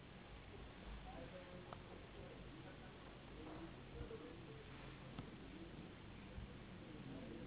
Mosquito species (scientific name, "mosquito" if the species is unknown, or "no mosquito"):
Anopheles gambiae s.s.